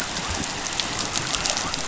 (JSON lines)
{"label": "biophony", "recorder": "SoundTrap 500"}